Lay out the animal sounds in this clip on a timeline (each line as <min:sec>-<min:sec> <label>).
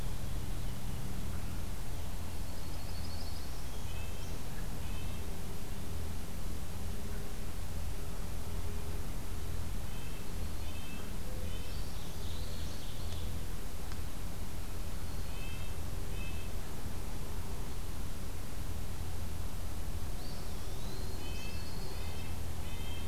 0:02.1-0:03.7 Yellow-rumped Warbler (Setophaga coronata)
0:03.3-0:04.4 Northern Parula (Setophaga americana)
0:03.8-0:05.2 Red-breasted Nuthatch (Sitta canadensis)
0:09.8-0:11.8 Red-breasted Nuthatch (Sitta canadensis)
0:11.5-0:12.6 Northern Parula (Setophaga americana)
0:11.7-0:12.7 Eastern Wood-Pewee (Contopus virens)
0:11.7-0:13.4 Ovenbird (Seiurus aurocapilla)
0:15.1-0:16.7 Red-breasted Nuthatch (Sitta canadensis)
0:20.2-0:21.2 Eastern Wood-Pewee (Contopus virens)
0:21.1-0:22.4 Yellow-rumped Warbler (Setophaga coronata)
0:21.2-0:23.1 Red-breasted Nuthatch (Sitta canadensis)